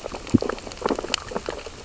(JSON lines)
{"label": "biophony, sea urchins (Echinidae)", "recorder": "SoundTrap 600 or HydroMoth"}